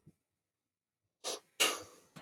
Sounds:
Sneeze